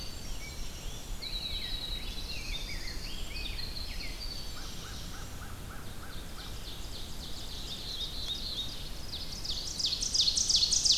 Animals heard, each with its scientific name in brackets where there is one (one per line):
Black-throated Blue Warbler (Setophaga caerulescens)
American Crow (Corvus brachyrhynchos)
Ovenbird (Seiurus aurocapilla)
Winter Wren (Troglodytes hiemalis)
Rose-breasted Grosbeak (Pheucticus ludovicianus)